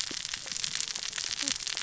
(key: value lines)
label: biophony, cascading saw
recorder: SoundTrap 600 or HydroMoth